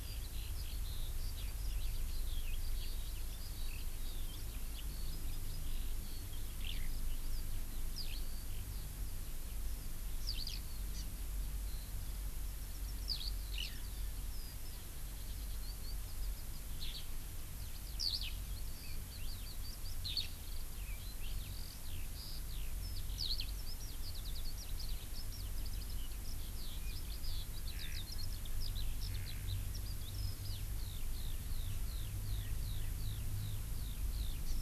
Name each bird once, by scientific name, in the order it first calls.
Alauda arvensis, Chlorodrepanis virens